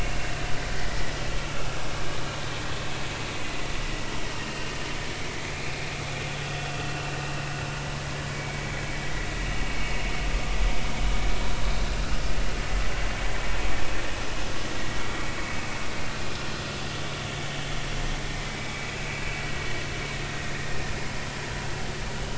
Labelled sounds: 1.4	1.7	vessel noise, 1.3 to 1.4 kHz
4.4	4.7	vessel noise, 2.7 to 2.9 kHz
5.5	5.9	vessel noise, 2.1 to 2.6 kHz
8.3	8.9	vessel noise, 2.2 to 2.4 kHz
18.5	18.9	vessel noise, 2.2 to 2.4 kHz

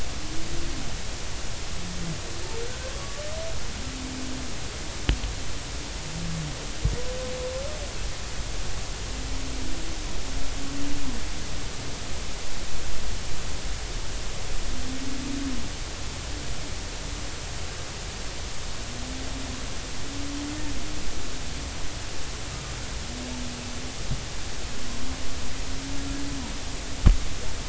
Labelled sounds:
2.9	3.2	humpback whale, 1.1 to 1.2 kHz

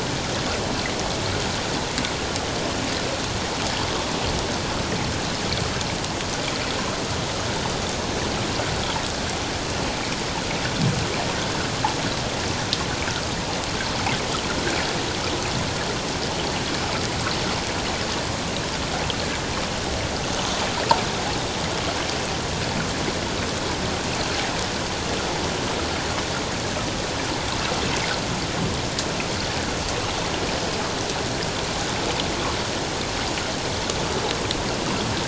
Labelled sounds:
11.4	11.6	water noise, 1.4 to 1.7 kHz

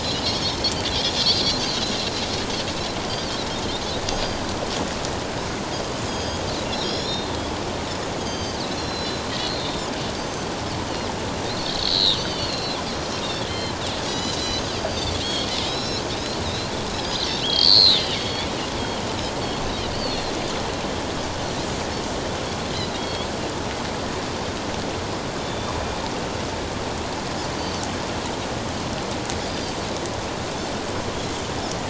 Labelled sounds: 0.0	0.5	Pacific white-sided dolphin, 4.0 to 7.2 kHz
3.1	3.4	Pacific white-sided dolphin, 4.2 to 4.8 kHz
4.1	4.4	Pacific white-sided dolphin, 4.7 to 4.9 kHz
6.1	7.3	Pacific white-sided dolphin, 3.1 to 6.9 kHz
8.2	10.5	Pacific white-sided dolphin, 3.1 to 6.6 kHz
11.5	12.8	Pacific white-sided dolphin, 2.6 to 4.7 kHz
13.2	18.5	Pacific white-sided dolphin, 1.9 to 7.2 kHz
19.9	20.3	Pacific white-sided dolphin, 4.0 to 4.8 kHz
22.7	23.3	Pacific white-sided dolphin, 3.2 to 4.2 kHz
25.4	25.7	Pacific white-sided dolphin, 3.3 to 3.7 kHz
27.6	27.8	Pacific white-sided dolphin, 4.5 to 4.7 kHz
29.5	29.8	Pacific white-sided dolphin, 4.5 to 4.9 kHz

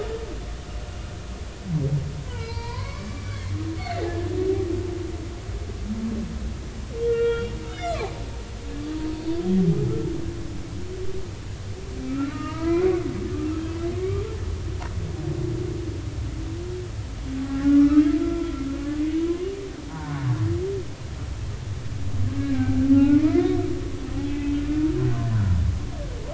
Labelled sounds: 2.3	4.3	humpback whale, 0.86 to 4.9 kHz
7.1	8.1	humpback whale, 1.0 to 3.7 kHz
12.1	13.0	humpback whale, 0.90 to 2.9 kHz
14.0	14.2	humpback whale, 1.0 to 1.2 kHz
17.5	18.2	humpback whale, 1.1 to 1.7 kHz
19.8	20.2	humpback whale, 0.86 to 1.6 kHz
22.4	23.6	humpback whale, 0.80 to 2.2 kHz

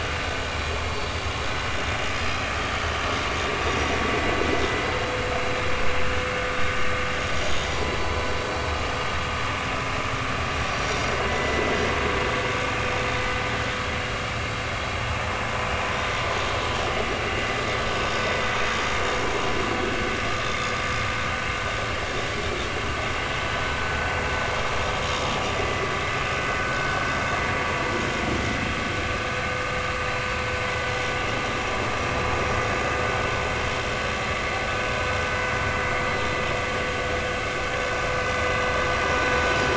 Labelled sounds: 7.4	8.2	vessel noise, 4.4 to 6.8 kHz
10.7	11.7	vessel noise, 1.9 to 5.9 kHz
20.4	20.7	vessel noise, 3.4 to 3.7 kHz

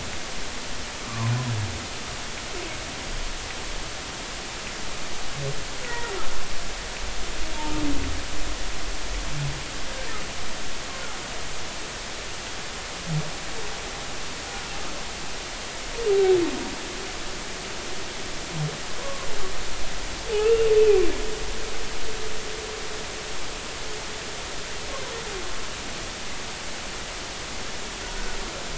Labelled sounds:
1.1	1.3	humpback whale, 0.90 to 1.2 kHz
5.9	6.1	humpback whale, 1.8 to 2.0 kHz
19.0	19.3	humpback whale, 0.96 to 1.2 kHz
20.3	21.1	humpback whale, 2.3 to 2.8 kHz
28.1	28.4	humpback whale, 1.4 to 1.5 kHz

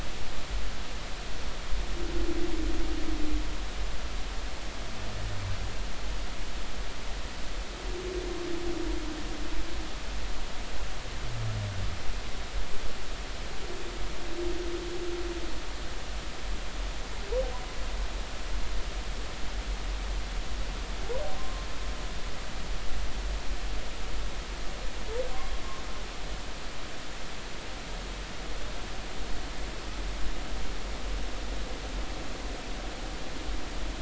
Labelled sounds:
21.4	21.6	humpback whale, 0.99 to 1.1 kHz

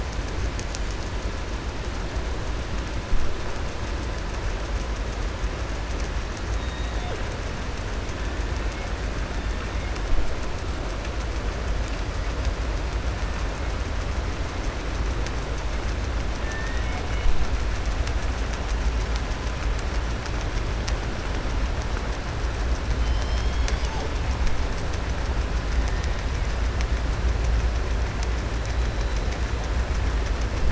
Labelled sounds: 6.5	7.2	killer whale, southern resident, 2.8 to 3.9 kHz
16.4	17.0	killer whale, southern resident, 1.4 to 3.0 kHz

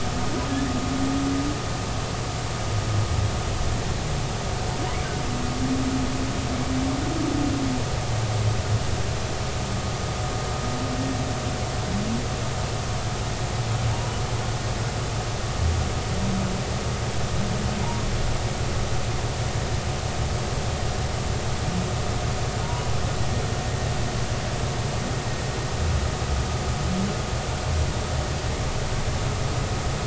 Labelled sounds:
13.9	14.2	humpback whale, 0.83 to 0.99 kHz
17.8	18.0	humpback whale, 0.83 to 1.0 kHz
22.6	22.9	humpback whale, 0.86 to 1.0 kHz

